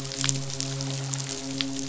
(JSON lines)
{"label": "biophony, midshipman", "recorder": "SoundTrap 500"}